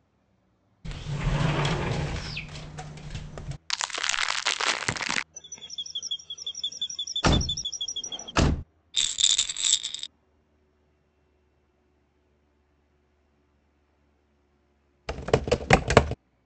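First, at 0.84 seconds, you can hear a sliding door. Then at 3.67 seconds, crackling is audible. Next, at 5.33 seconds, chirping can be heard. Over it, at 7.22 seconds, a car can be heard. Afterwards, at 8.93 seconds, there is rattling. Finally, at 15.07 seconds, the sound of a computer keyboard is audible.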